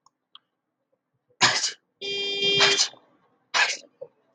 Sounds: Sneeze